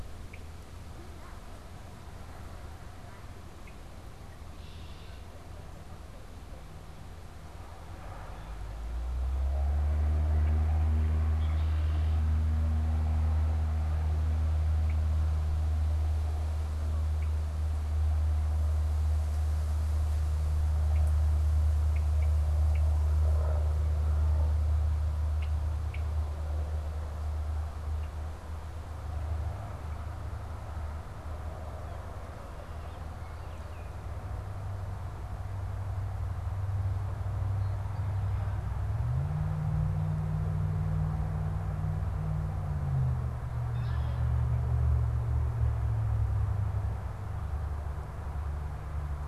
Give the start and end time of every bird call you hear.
[0.00, 5.38] Red-winged Blackbird (Agelaius phoeniceus)
[11.08, 28.18] Red-winged Blackbird (Agelaius phoeniceus)
[32.48, 33.98] Baltimore Oriole (Icterus galbula)
[43.58, 44.28] Red-winged Blackbird (Agelaius phoeniceus)

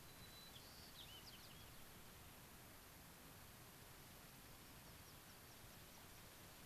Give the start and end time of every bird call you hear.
[0.00, 1.70] White-crowned Sparrow (Zonotrichia leucophrys)
[4.40, 6.60] American Pipit (Anthus rubescens)

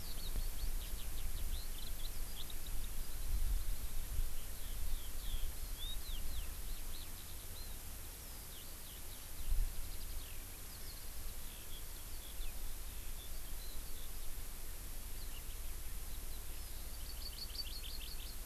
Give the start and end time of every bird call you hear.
[0.00, 3.10] Eurasian Skylark (Alauda arvensis)
[2.10, 2.30] Warbling White-eye (Zosterops japonicus)
[4.30, 7.80] Eurasian Skylark (Alauda arvensis)
[8.20, 14.30] Eurasian Skylark (Alauda arvensis)
[16.80, 18.40] Hawaii Amakihi (Chlorodrepanis virens)

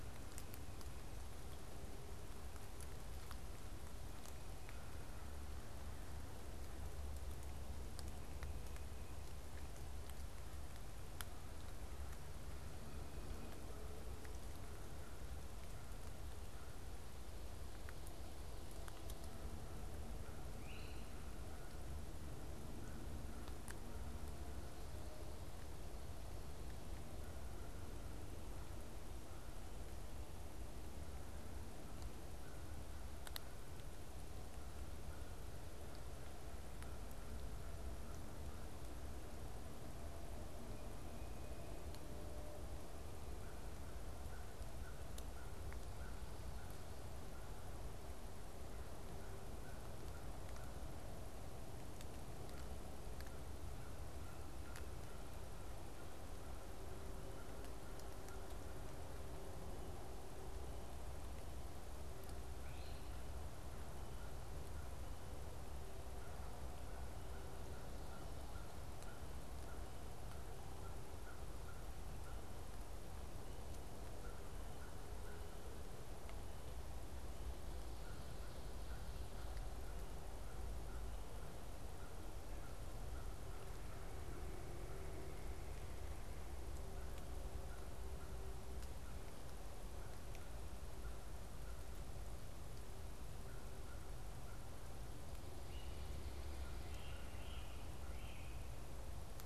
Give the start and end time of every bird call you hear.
[20.50, 21.20] Great Crested Flycatcher (Myiarchus crinitus)
[44.20, 58.80] American Crow (Corvus brachyrhynchos)
[63.50, 72.50] American Crow (Corvus brachyrhynchos)
[74.10, 85.40] American Crow (Corvus brachyrhynchos)
[86.70, 95.00] American Crow (Corvus brachyrhynchos)
[96.60, 98.70] Great Crested Flycatcher (Myiarchus crinitus)

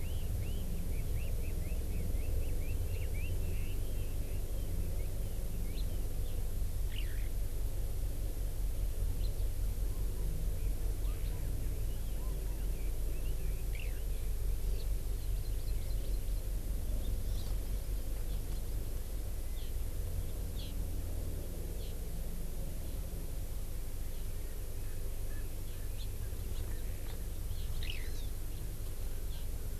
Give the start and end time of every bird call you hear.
[0.00, 5.40] Red-billed Leiothrix (Leiothrix lutea)
[6.80, 7.30] Eurasian Skylark (Alauda arvensis)
[11.90, 14.20] Red-billed Leiothrix (Leiothrix lutea)
[13.70, 14.00] Eurasian Skylark (Alauda arvensis)
[14.80, 14.90] House Finch (Haemorhous mexicanus)
[15.20, 16.40] Hawaii Amakihi (Chlorodrepanis virens)
[17.30, 17.50] Hawaii Amakihi (Chlorodrepanis virens)
[19.50, 19.70] Hawaii Amakihi (Chlorodrepanis virens)
[20.50, 20.70] Hawaii Amakihi (Chlorodrepanis virens)
[21.80, 22.00] Hawaii Amakihi (Chlorodrepanis virens)
[24.30, 26.30] Erckel's Francolin (Pternistis erckelii)
[27.80, 28.20] Eurasian Skylark (Alauda arvensis)
[29.30, 29.50] Hawaii Amakihi (Chlorodrepanis virens)

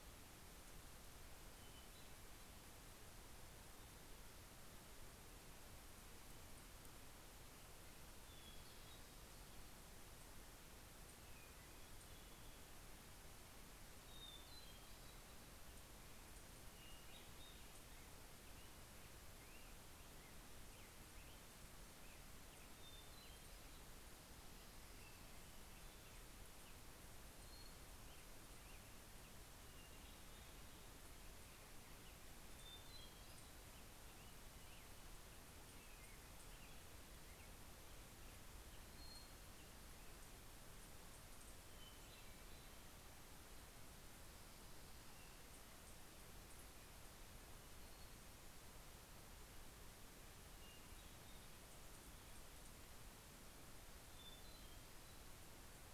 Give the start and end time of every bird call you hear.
[0.97, 3.07] Hermit Thrush (Catharus guttatus)
[7.77, 9.47] Hermit Thrush (Catharus guttatus)
[10.57, 13.07] Hermit Thrush (Catharus guttatus)
[13.57, 15.67] Hermit Thrush (Catharus guttatus)
[16.17, 18.17] Hermit Thrush (Catharus guttatus)
[18.87, 26.57] Black-headed Grosbeak (Pheucticus melanocephalus)
[21.77, 24.07] Hermit Thrush (Catharus guttatus)
[28.67, 31.27] Hermit Thrush (Catharus guttatus)
[32.17, 34.27] Hermit Thrush (Catharus guttatus)
[37.97, 40.27] Hermit Thrush (Catharus guttatus)
[41.27, 43.27] Hermit Thrush (Catharus guttatus)
[50.17, 52.17] Hermit Thrush (Catharus guttatus)
[53.87, 55.87] Hermit Thrush (Catharus guttatus)

